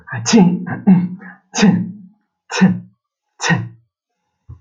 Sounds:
Sneeze